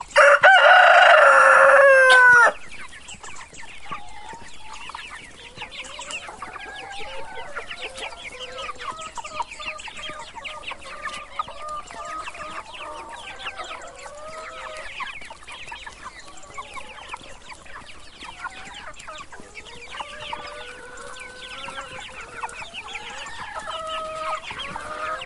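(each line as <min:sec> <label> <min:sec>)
0:00.1 A rooster crows. 0:02.5
0:02.5 Chicks chirping and chickens clucking in the background. 0:25.3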